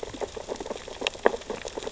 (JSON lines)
{"label": "biophony, sea urchins (Echinidae)", "recorder": "SoundTrap 600 or HydroMoth"}